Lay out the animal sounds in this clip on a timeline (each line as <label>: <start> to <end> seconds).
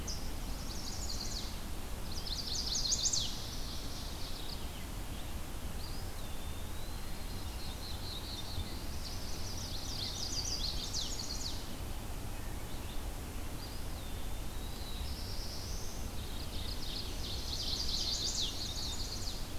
Chestnut-sided Warbler (Setophaga pensylvanica): 0.2 to 3.5 seconds
Mourning Warbler (Geothlypis philadelphia): 3.3 to 4.7 seconds
Eastern Wood-Pewee (Contopus virens): 5.7 to 7.4 seconds
Black-throated Blue Warbler (Setophaga caerulescens): 7.3 to 9.1 seconds
Mourning Warbler (Geothlypis philadelphia): 8.7 to 10.1 seconds
Chestnut-sided Warbler (Setophaga pensylvanica): 8.9 to 11.7 seconds
Eastern Wood-Pewee (Contopus virens): 13.4 to 15.0 seconds
Black-throated Blue Warbler (Setophaga caerulescens): 14.7 to 16.2 seconds
Mourning Warbler (Geothlypis philadelphia): 16.1 to 17.2 seconds
Chestnut-sided Warbler (Setophaga pensylvanica): 17.1 to 19.6 seconds